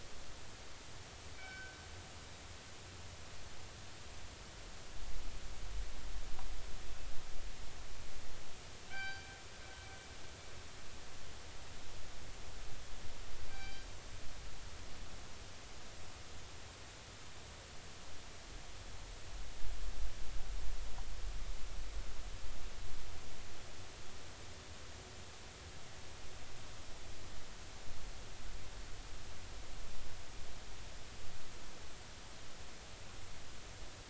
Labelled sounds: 1.3	1.8	killer whale, northern resident, G clan, call N24ii, 1.4 to 5.4 kHz
8.9	9.3	killer whale, northern resident, G clan, call N24ii, 0.80 to 4.8 kHz
13.5	13.9	killer whale, northern resident, G clan, call N24ii, 1.5 to 4.8 kHz

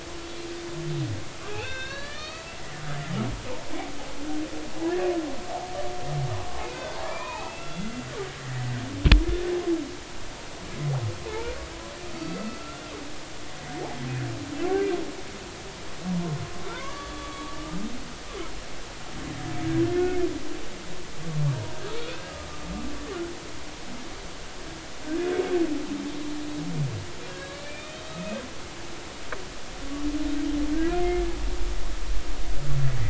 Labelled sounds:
1.5	2.6	humpback whale, 1.2 to 5.3 kHz
4.8	5.1	humpback whale, 1.6 to 1.9 kHz
6.7	7.9	humpback whale, 0.80 to 3.5 kHz
11.3	11.6	humpback whale, 0.83 to 2.5 kHz
12.1	12.6	humpback whale, 1.2 to 4.6 kHz
16.7	17.6	humpback whale, 0.90 to 3.5 kHz
27.3	28.4	humpback whale, 1.6 to 3.8 kHz

